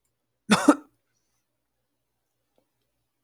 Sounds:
Throat clearing